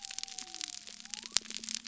{"label": "biophony", "recorder": "SoundTrap 300"}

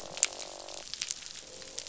{"label": "biophony, croak", "recorder": "SoundTrap 500"}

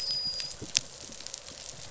{"label": "biophony, dolphin", "recorder": "SoundTrap 500"}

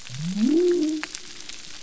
{"label": "biophony", "recorder": "SoundTrap 300"}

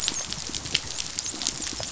{"label": "biophony, dolphin", "recorder": "SoundTrap 500"}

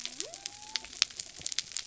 {"label": "biophony", "recorder": "SoundTrap 300"}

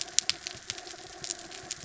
{"label": "anthrophony, mechanical", "recorder": "SoundTrap 300"}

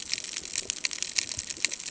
{"label": "ambient", "recorder": "HydroMoth"}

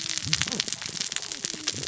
{"label": "biophony, cascading saw", "recorder": "SoundTrap 600 or HydroMoth"}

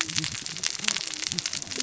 {"label": "biophony, cascading saw", "recorder": "SoundTrap 600 or HydroMoth"}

